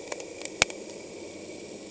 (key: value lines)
label: anthrophony, boat engine
recorder: HydroMoth